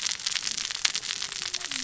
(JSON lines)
{"label": "biophony, cascading saw", "recorder": "SoundTrap 600 or HydroMoth"}